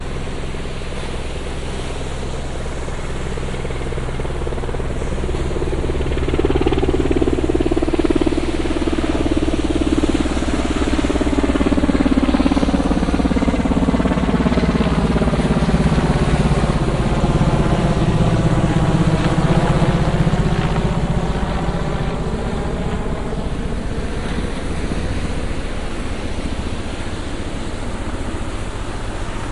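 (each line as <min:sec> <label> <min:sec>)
0:00.0 A propeller plane approaches and then moves away overhead. 0:29.5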